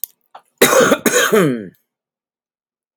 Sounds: Cough